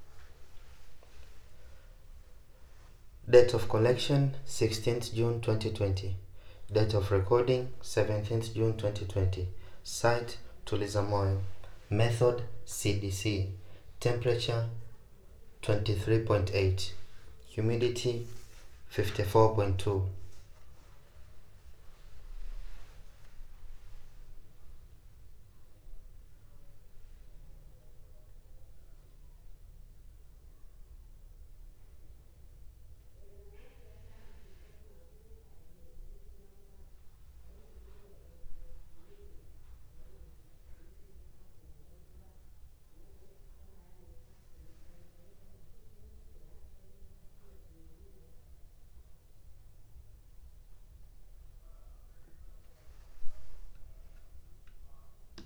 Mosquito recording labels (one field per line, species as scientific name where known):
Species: no mosquito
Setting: cup